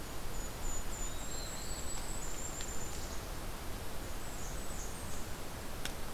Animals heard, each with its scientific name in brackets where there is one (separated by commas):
Blackburnian Warbler (Setophaga fusca), Golden-crowned Kinglet (Regulus satrapa), Black-throated Blue Warbler (Setophaga caerulescens)